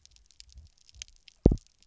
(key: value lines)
label: biophony, double pulse
recorder: SoundTrap 300